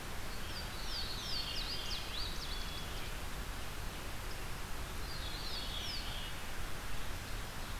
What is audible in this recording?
Louisiana Waterthrush, Veery, Black-capped Chickadee